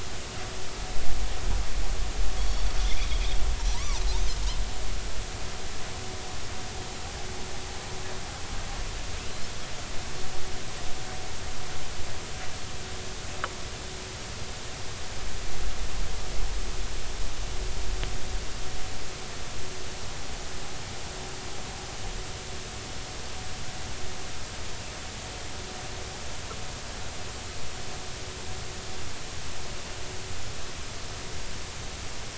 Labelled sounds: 2.4	2.7	Pacific white-sided dolphin, 3.2 to 4.6 kHz
3.7	4.0	Pacific white-sided dolphin, 0.80 to 1.2 kHz

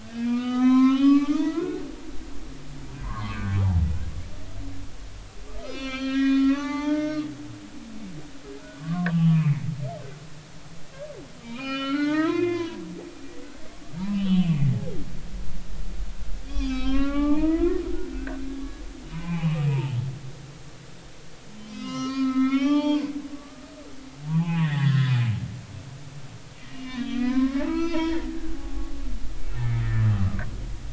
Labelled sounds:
0.0	1.9	humpback whale, 0.80 to 6.6 kHz
3.0	3.5	humpback whale, 0.90 to 1.2 kHz
5.6	7.3	humpback whale, 0.83 to 5.9 kHz
8.8	9.7	humpback whale, 0.99 to 3.2 kHz
11.4	12.8	humpback whale, 0.83 to 5.5 kHz
14.0	14.7	humpback whale, 0.86 to 3.5 kHz
16.4	20.0	humpback whale, 0.80 to 5.4 kHz
21.6	23.7	humpback whale, 0.80 to 6.5 kHz
24.3	25.2	humpback whale, 0.80 to 3.5 kHz
26.7	28.3	humpback whale, 0.83 to 4.4 kHz
28.5	28.9	humpback whale, 0.80 to 1.2 kHz
29.5	30.4	humpback whale, 1.1 to 1.9 kHz

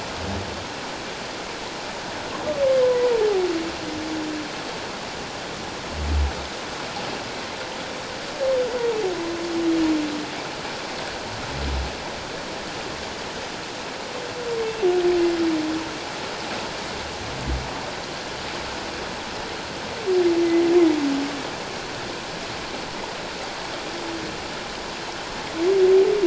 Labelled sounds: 2.8	3.1	humpback whale, 0.94 to 1.1 kHz

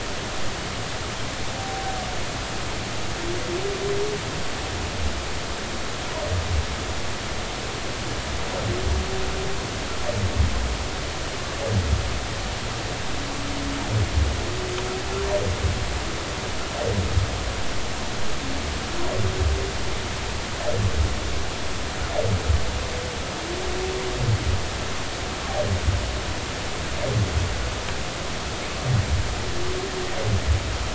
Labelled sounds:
1.6	1.9	humpback whale, 0.80 to 0.83 kHz

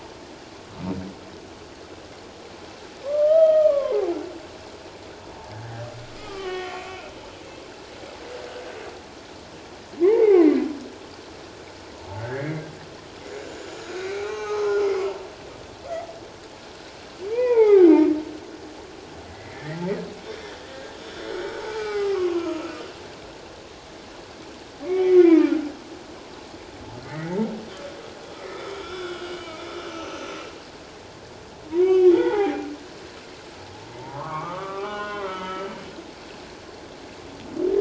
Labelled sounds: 3.0	4.1	humpback whale, 0.78 to 3.2 kHz
6.2	7.1	humpback whale, 1.1 to 6.1 kHz
10.0	10.5	humpback whale, 0.78 to 2.6 kHz
12.2	12.6	humpback whale, 1.4 to 2.2 kHz
13.9	14.8	humpback whale, 0.78 to 6.5 kHz
17.3	18.1	humpback whale, 0.78 to 2.6 kHz
19.3	19.8	humpback whale, 1.7 to 2.2 kHz
20.2	20.5	humpback whale, 3.3 to 3.7 kHz
21.0	22.6	humpback whale, 0.78 to 5.5 kHz
24.8	25.5	humpback whale, 1.2 to 2.5 kHz
27.0	27.4	humpback whale, 1.7 to 2.2 kHz
28.7	29.6	humpback whale, 1.3 to 3.6 kHz
29.9	30.3	humpback whale, 2.5 to 6.2 kHz
31.8	32.7	humpback whale, 0.78 to 3.5 kHz
33.9	35.7	humpback whale, 0.78 to 3.2 kHz

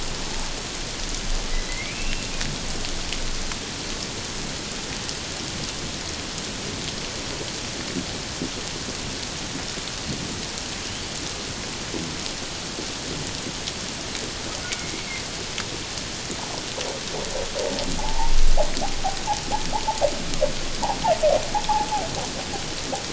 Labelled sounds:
1.5	2.3	humpback whale, 1.9 to 2.8 kHz
18.0	18.3	humpback whale, 0.78 to 1.0 kHz

